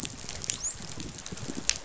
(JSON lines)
{"label": "biophony, dolphin", "recorder": "SoundTrap 500"}